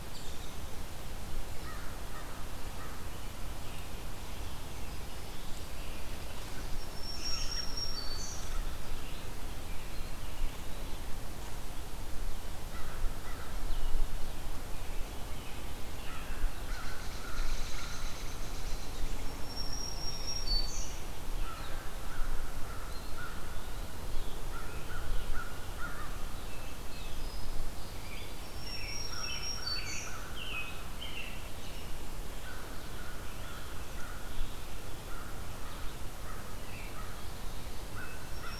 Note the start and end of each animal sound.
0.0s-0.6s: American Robin (Turdus migratorius)
1.5s-3.0s: American Crow (Corvus brachyrhynchos)
6.8s-8.5s: Black-throated Green Warbler (Setophaga virens)
7.0s-7.7s: American Robin (Turdus migratorius)
9.8s-11.0s: Eastern Wood-Pewee (Contopus virens)
12.7s-13.4s: American Crow (Corvus brachyrhynchos)
15.9s-18.3s: American Crow (Corvus brachyrhynchos)
16.6s-19.3s: American Robin (Turdus migratorius)
19.2s-21.0s: Black-throated Green Warbler (Setophaga virens)
21.3s-23.9s: American Crow (Corvus brachyrhynchos)
22.8s-24.0s: Eastern Wood-Pewee (Contopus virens)
24.1s-27.2s: American Robin (Turdus migratorius)
24.4s-26.7s: American Crow (Corvus brachyrhynchos)
27.1s-27.8s: Black-throated Green Warbler (Setophaga virens)
27.8s-38.6s: Red-eyed Vireo (Vireo olivaceus)
28.1s-31.9s: American Robin (Turdus migratorius)
28.4s-30.2s: Black-throated Green Warbler (Setophaga virens)
29.1s-31.0s: American Crow (Corvus brachyrhynchos)
32.2s-34.4s: American Crow (Corvus brachyrhynchos)
32.7s-34.7s: American Robin (Turdus migratorius)
34.9s-38.6s: American Crow (Corvus brachyrhynchos)

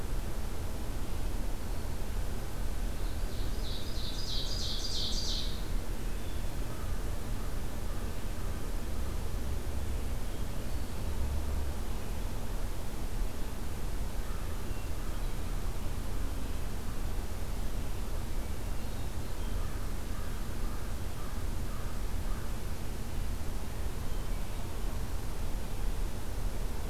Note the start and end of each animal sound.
2.8s-5.6s: Ovenbird (Seiurus aurocapilla)
10.1s-11.1s: Hermit Thrush (Catharus guttatus)
14.5s-15.6s: Hermit Thrush (Catharus guttatus)
18.4s-19.7s: Hermit Thrush (Catharus guttatus)
20.5s-22.5s: American Crow (Corvus brachyrhynchos)

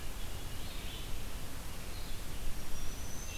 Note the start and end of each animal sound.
0.0s-3.4s: Red-eyed Vireo (Vireo olivaceus)
2.5s-3.4s: Black-throated Green Warbler (Setophaga virens)

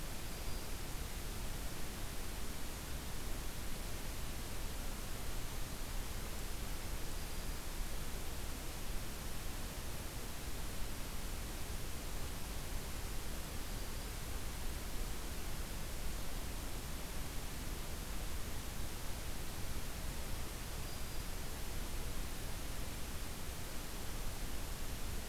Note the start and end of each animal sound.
0.0s-0.9s: Black-throated Green Warbler (Setophaga virens)
6.9s-7.7s: Black-throated Green Warbler (Setophaga virens)
13.4s-14.3s: Black-throated Green Warbler (Setophaga virens)

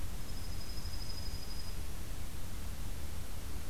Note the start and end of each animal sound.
0.0s-1.8s: Dark-eyed Junco (Junco hyemalis)

